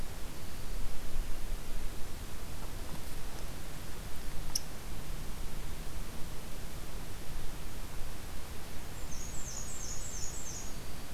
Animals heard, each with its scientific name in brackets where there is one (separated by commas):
Black-throated Green Warbler (Setophaga virens), Black-and-white Warbler (Mniotilta varia)